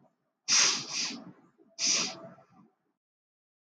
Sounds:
Sniff